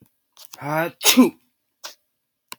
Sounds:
Sneeze